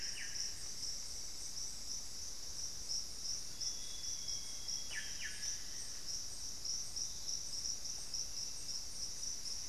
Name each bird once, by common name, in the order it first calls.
Solitary Black Cacique, unidentified bird, Amazonian Grosbeak, Black-faced Antthrush